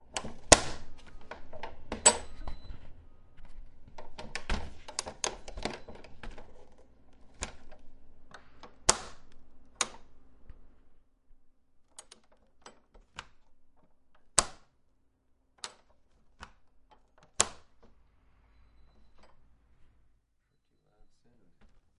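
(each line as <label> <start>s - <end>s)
A metal door latch on a wooden door closes loudly. 0.0s - 1.3s
A metal door latch on a wooden door is being opened. 1.5s - 2.8s
A door closes softly. 3.9s - 4.9s
A metal door latch on a wooden door is being closed. 5.0s - 6.1s
Footsteps on a creaky wooden floor. 6.1s - 6.8s
A metal door latch on a wooden door is being opened. 7.2s - 7.9s
A metal door latch on a wooden door closes loudly. 8.6s - 9.3s
A metal door latch on a wooden door is being opened. 9.8s - 10.0s
A metal door latch on a wooden door is being opened. 11.9s - 13.3s
A metal door latch on a wooden door closes loudly. 14.3s - 14.5s
A metal door latch on a wooden door is being opened. 15.6s - 16.6s
A metal door latch on a wooden door closes loudly. 17.4s - 17.5s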